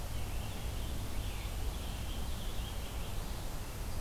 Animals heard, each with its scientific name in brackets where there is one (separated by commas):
Scarlet Tanager (Piranga olivacea)